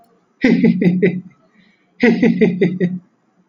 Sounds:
Laughter